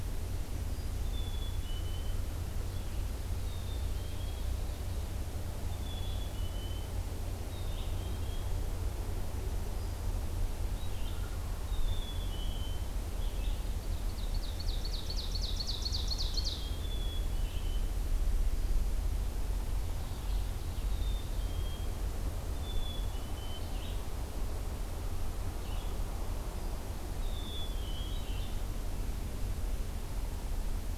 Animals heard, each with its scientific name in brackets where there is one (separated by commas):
Red-eyed Vireo (Vireo olivaceus), Wild Turkey (Meleagris gallopavo), Ovenbird (Seiurus aurocapilla), Black-throated Green Warbler (Setophaga virens), Black-capped Chickadee (Poecile atricapillus)